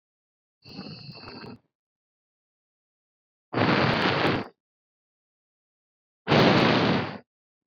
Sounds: Sigh